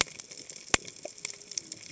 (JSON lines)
{"label": "biophony, cascading saw", "recorder": "HydroMoth"}